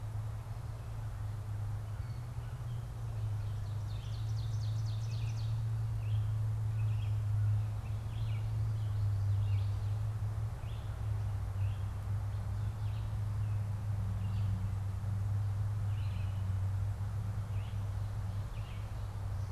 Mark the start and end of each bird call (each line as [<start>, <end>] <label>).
[3.43, 5.63] Ovenbird (Seiurus aurocapilla)
[5.93, 19.52] Red-eyed Vireo (Vireo olivaceus)